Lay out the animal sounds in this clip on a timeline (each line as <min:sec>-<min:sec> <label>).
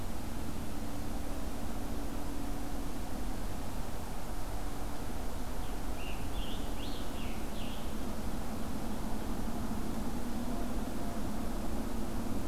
0:05.4-0:07.8 Scarlet Tanager (Piranga olivacea)